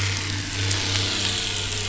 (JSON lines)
{"label": "anthrophony, boat engine", "recorder": "SoundTrap 500"}